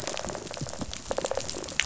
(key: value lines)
label: biophony, rattle response
recorder: SoundTrap 500